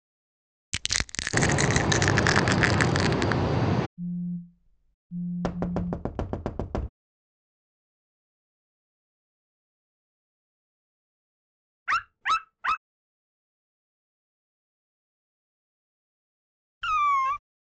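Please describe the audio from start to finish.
First crushing can be heard. While that goes on, a boat is audible. Next, there is the sound of a telephone. Meanwhile, knocking is audible. Then a dog can be heard. Finally, a cat meows.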